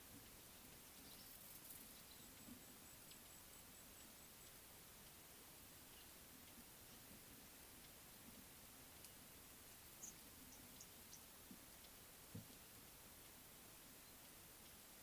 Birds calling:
Speckle-fronted Weaver (Sporopipes frontalis)

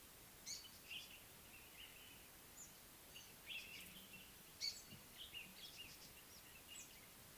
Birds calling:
Tawny-flanked Prinia (Prinia subflava)

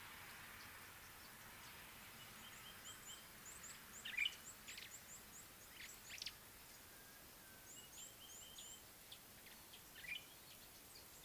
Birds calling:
Red-cheeked Cordonbleu (Uraeginthus bengalus), Common Bulbul (Pycnonotus barbatus)

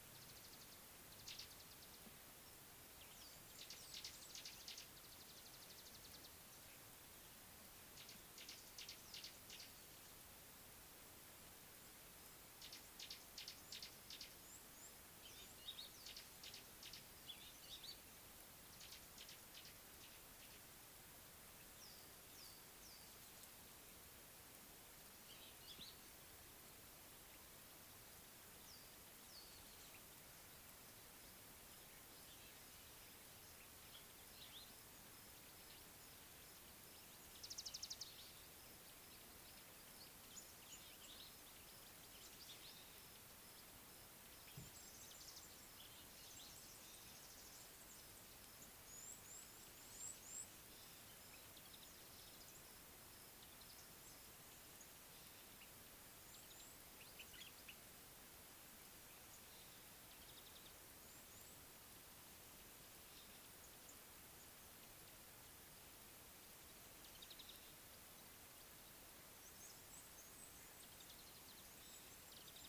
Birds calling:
Mariqua Sunbird (Cinnyris mariquensis), Red-cheeked Cordonbleu (Uraeginthus bengalus), Scarlet-chested Sunbird (Chalcomitra senegalensis), Common Bulbul (Pycnonotus barbatus), Gray-backed Camaroptera (Camaroptera brevicaudata)

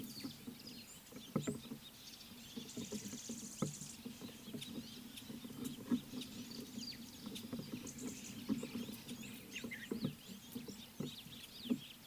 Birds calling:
Purple Grenadier (Granatina ianthinogaster)

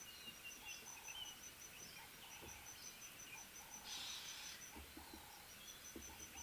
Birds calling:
Ring-necked Dove (Streptopelia capicola)

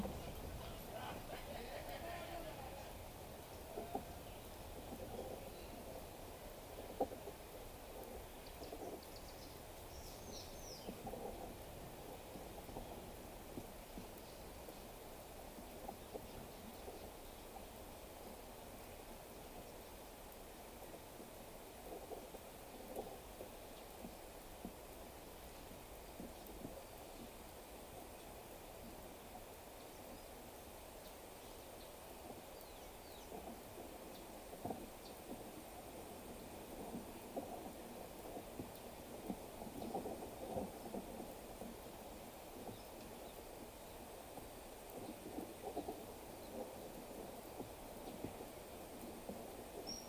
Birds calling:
Spectacled Weaver (Ploceus ocularis)

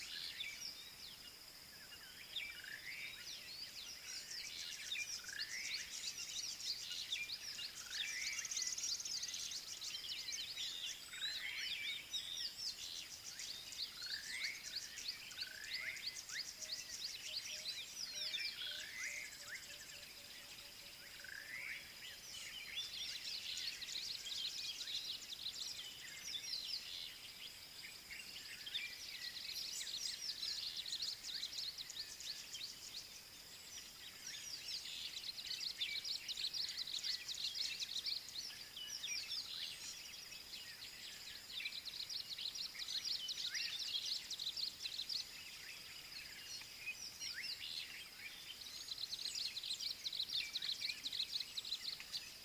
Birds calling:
Tawny-flanked Prinia (Prinia subflava), Slate-colored Boubou (Laniarius funebris), Red-faced Crombec (Sylvietta whytii)

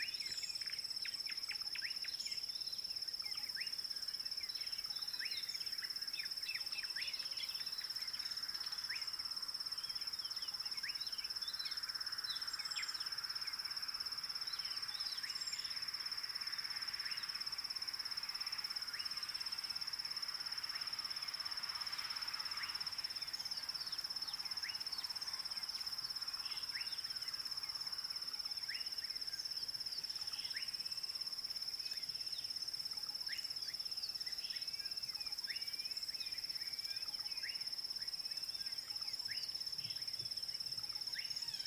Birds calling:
Klaas's Cuckoo (Chrysococcyx klaas), Slate-colored Boubou (Laniarius funebris)

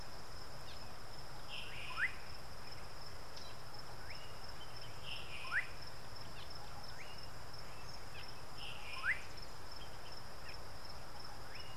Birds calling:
Gray-backed Camaroptera (Camaroptera brevicaudata), Slate-colored Boubou (Laniarius funebris)

